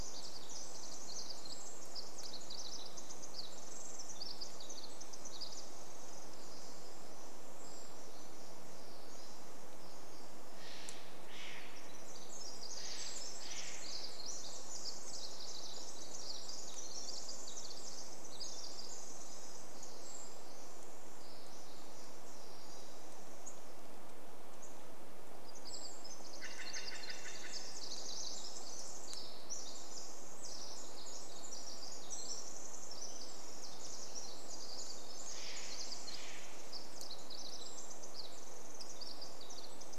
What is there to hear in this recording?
Brown Creeper call, Pacific Wren song, Steller's Jay call, unidentified bird chip note